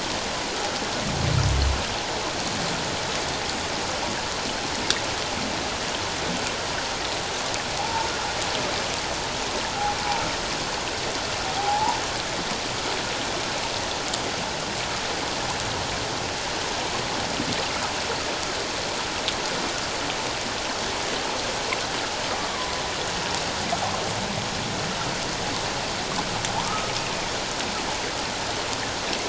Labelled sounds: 7.8	8.1	humpback whale, 0.78 to 0.97 kHz
11.6	12.0	humpback whale, 0.78 to 1.0 kHz
26.6	26.9	humpback whale, 0.78 to 1.3 kHz

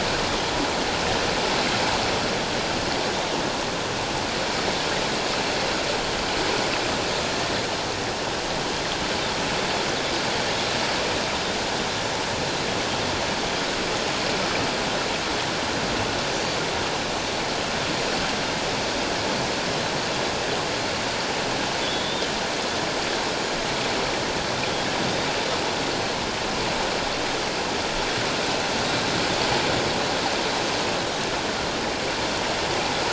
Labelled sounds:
21.8	22.3	Pacific white-sided dolphin, 3.2 to 3.8 kHz

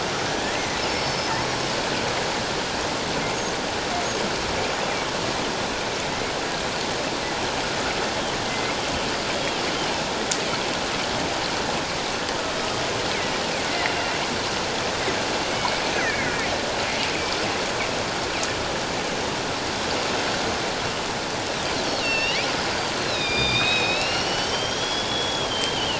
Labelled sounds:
1.4	1.7	killer whale, northern resident, G clan, 5.3 to 5.7 kHz
8.5	8.8	killer whale, northern resident, G clan, 2.0 to 2.2 kHz
13.9	14.2	killer whale, northern resident, G clan, 2.7 to 2.8 kHz
15.5	16.5	killer whale, northern resident, G clan, 1.7 to 6.3 kHz
22.0	22.5	killer whale, northern resident, G clan, 1.8 to 5.7 kHz
23.0	25.9	killer whale, northern resident, G clan, 2.3 to 5.8 kHz

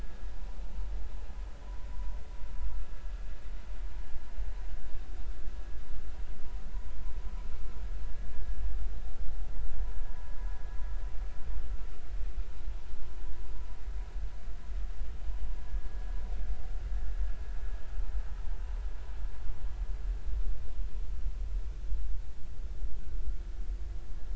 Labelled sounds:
1.9	2.1	vessel noise, 0.93 to 1.1 kHz

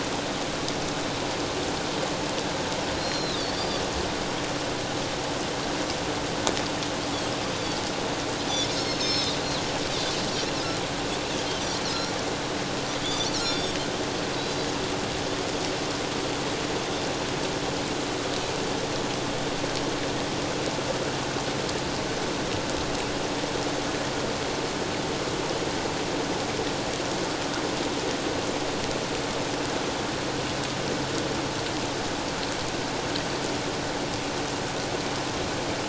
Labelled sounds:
3.0	3.8	Pacific white-sided dolphin, 3.3 to 5.7 kHz
8.7	9.4	Pacific white-sided dolphin, 3.4 to 6.6 kHz
11.8	12.1	Pacific white-sided dolphin, 4.0 to 4.5 kHz
13.0	13.7	Pacific white-sided dolphin, 3.2 to 6.0 kHz
14.4	14.7	Pacific white-sided dolphin, 3.8 to 4.0 kHz

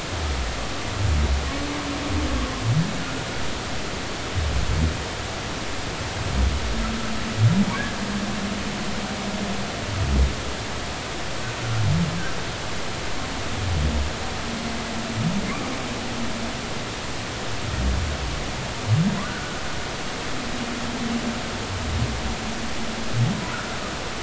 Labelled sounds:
19.2	19.6	humpback whale, 1.3 to 1.6 kHz

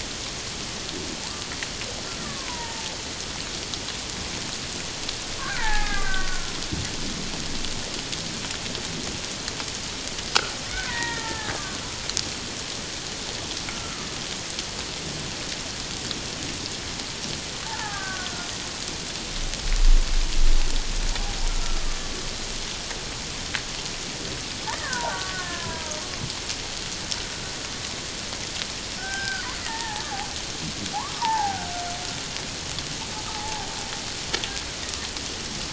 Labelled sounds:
2.2	3.0	killer whale, Bigg's (transient), 0.84 to 1.2 kHz
5.4	6.5	killer whale, Bigg's (transient), 0.78 to 2.2 kHz
10.9	11.8	killer whale, Bigg's (transient), 0.81 to 2.1 kHz
13.7	14.1	killer whale, Bigg's (transient), 1.2 to 1.4 kHz
17.7	18.3	killer whale, Bigg's (transient), 0.78 to 1.7 kHz
21.5	21.8	killer whale, Bigg's (transient), 1.3 to 1.4 kHz
24.7	25.8	killer whale, Bigg's (transient), 0.78 to 2.0 kHz
29.0	30.0	killer whale, Bigg's (transient), 0.78 to 2.1 kHz
30.9	31.7	killer whale, Bigg's (transient), 0.78 to 1.7 kHz
33.3	33.7	killer whale, Bigg's (transient), 0.78 to 0.97 kHz

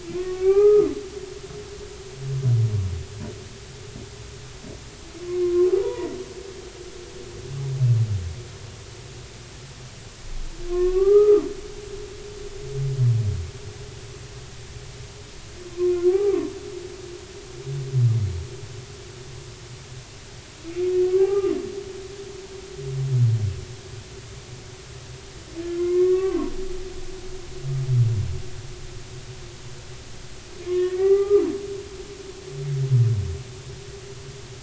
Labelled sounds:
0.0	0.9	humpback whale, 0.80 to 2.6 kHz
5.3	6.2	humpback whale, 0.86 to 2.0 kHz
10.7	11.5	humpback whale, 0.80 to 2.8 kHz
16.0	16.5	humpback whale, 0.80 to 1.3 kHz
21.0	21.5	humpback whale, 0.80 to 1.3 kHz
25.8	26.5	humpback whale, 0.93 to 2.2 kHz
30.6	31.4	humpback whale, 0.80 to 2.0 kHz

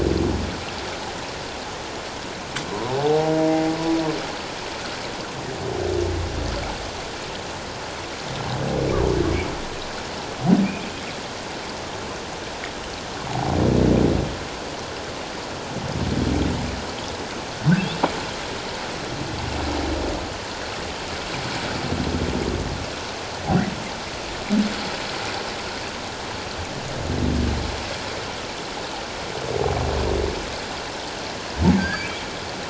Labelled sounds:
3.0	3.3	humpback whale, 0.78 to 0.94 kHz
13.3	13.5	humpback whale, 0.78 to 0.97 kHz
31.8	32.2	humpback whale, 1.5 to 4.8 kHz

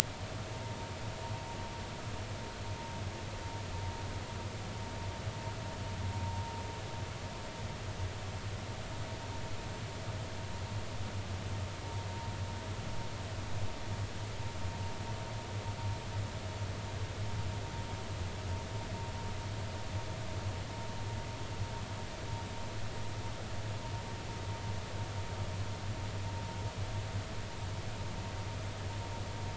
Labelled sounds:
0.5	0.8	vessel noise, 0.86 to 1.0 kHz

